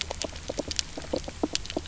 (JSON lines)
{"label": "biophony, knock croak", "recorder": "SoundTrap 300"}